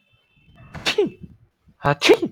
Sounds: Sneeze